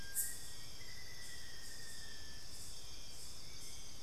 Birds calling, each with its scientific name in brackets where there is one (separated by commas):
Black-faced Antthrush (Formicarius analis), Amazonian Motmot (Momotus momota)